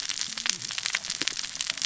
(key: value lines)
label: biophony, cascading saw
recorder: SoundTrap 600 or HydroMoth